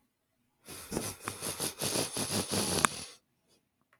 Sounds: Sniff